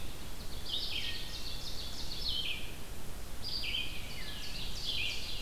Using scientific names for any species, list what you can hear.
Seiurus aurocapilla, Vireo olivaceus, Hylocichla mustelina